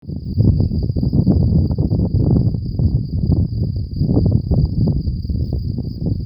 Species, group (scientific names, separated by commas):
Gryllus campestris, Orthoptera